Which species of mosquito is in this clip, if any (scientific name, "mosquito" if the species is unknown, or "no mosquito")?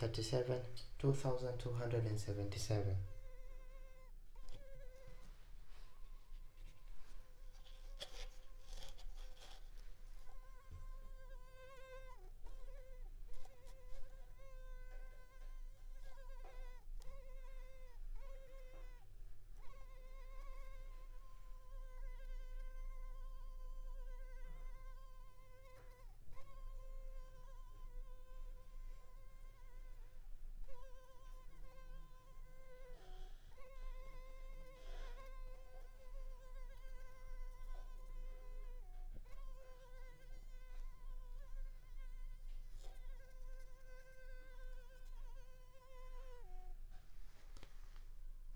Culex pipiens complex